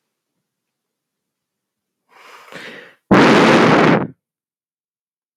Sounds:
Sigh